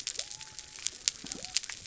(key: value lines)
label: biophony
recorder: SoundTrap 300